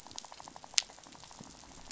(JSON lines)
{"label": "biophony, rattle", "recorder": "SoundTrap 500"}